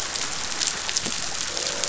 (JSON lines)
{"label": "biophony, croak", "recorder": "SoundTrap 500"}